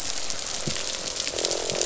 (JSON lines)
{"label": "biophony, croak", "recorder": "SoundTrap 500"}